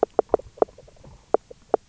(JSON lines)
{"label": "biophony, knock croak", "recorder": "SoundTrap 300"}